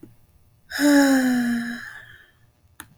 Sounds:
Sigh